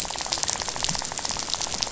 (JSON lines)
{"label": "biophony, rattle", "recorder": "SoundTrap 500"}